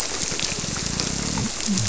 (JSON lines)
{"label": "biophony", "recorder": "SoundTrap 300"}